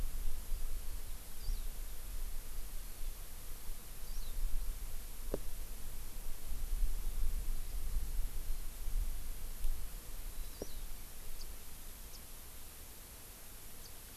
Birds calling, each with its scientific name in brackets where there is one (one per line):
House Finch (Haemorhous mexicanus)